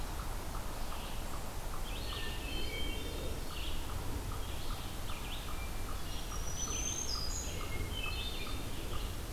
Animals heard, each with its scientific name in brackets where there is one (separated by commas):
Black-throated Green Warbler (Setophaga virens), Hermit Thrush (Catharus guttatus), Red-eyed Vireo (Vireo olivaceus)